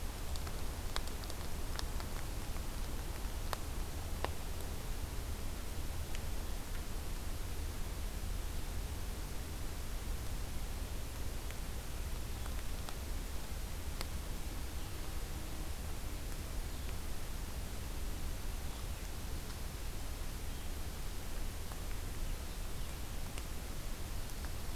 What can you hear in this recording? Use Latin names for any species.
forest ambience